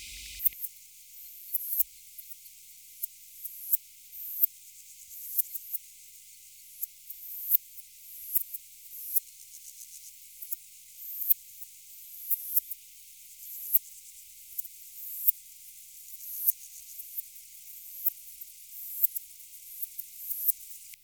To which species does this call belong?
Poecilimon affinis